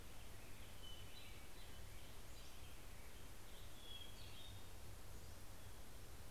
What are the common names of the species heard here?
Hermit Thrush, Pacific-slope Flycatcher